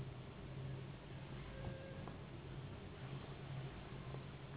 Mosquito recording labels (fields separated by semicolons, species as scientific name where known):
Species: Anopheles gambiae s.s.; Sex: female; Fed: unfed; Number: one; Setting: insect culture